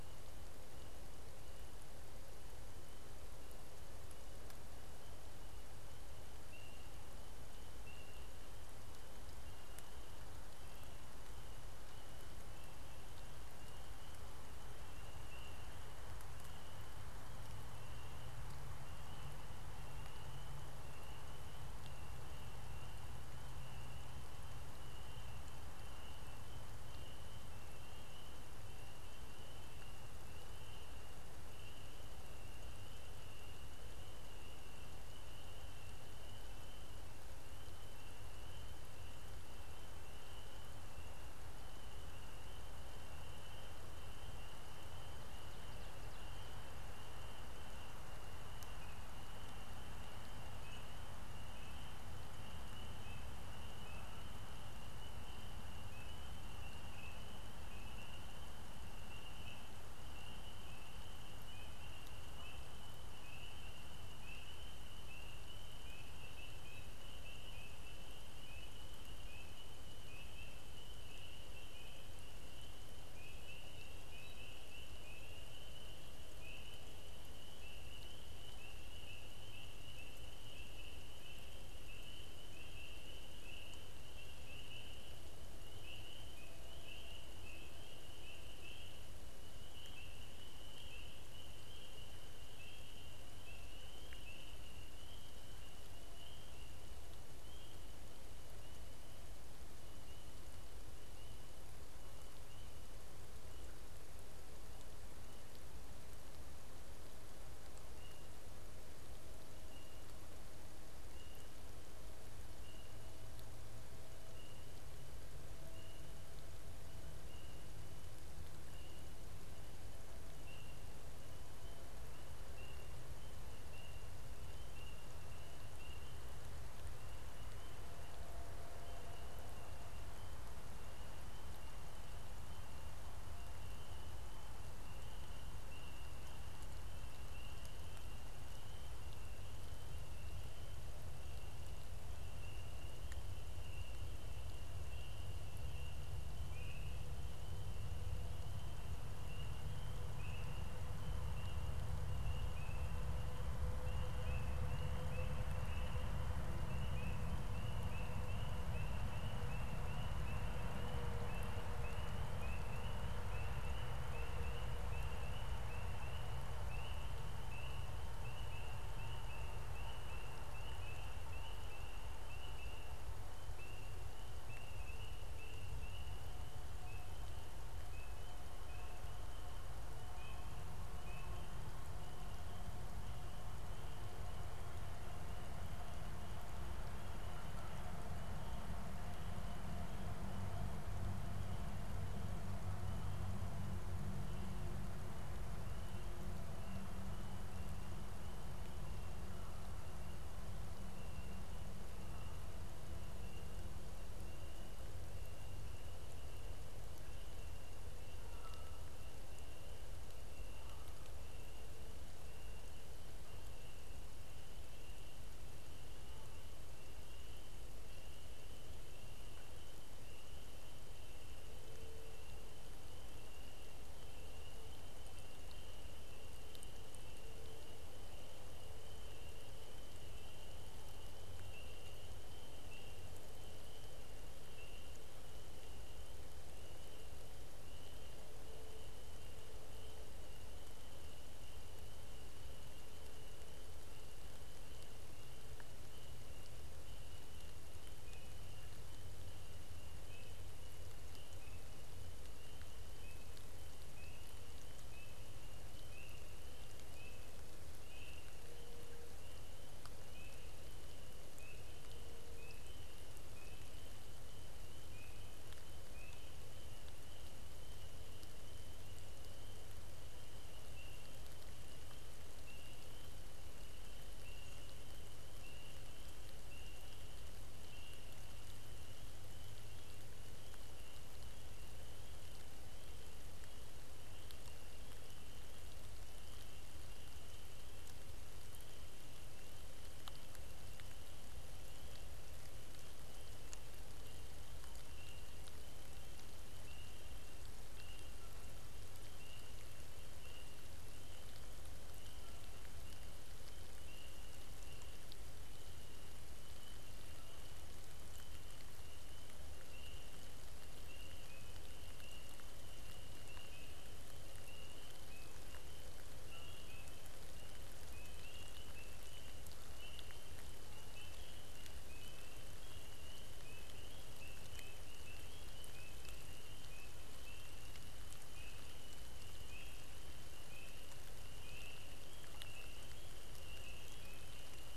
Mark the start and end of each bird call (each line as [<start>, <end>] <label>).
[208.08, 209.08] Canada Goose (Branta canadensis)